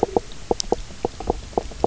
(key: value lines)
label: biophony, knock croak
recorder: SoundTrap 300